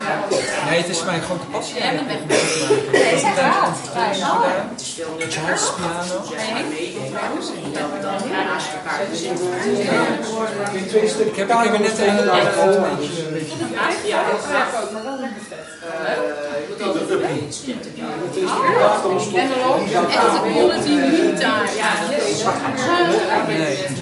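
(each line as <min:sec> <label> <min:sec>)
0:00.0 People talking loudly in an echoing room. 0:24.0
0:00.1 A woman coughs in a crowded room. 0:00.7
0:02.2 A woman coughs twice in a crowded room. 0:03.4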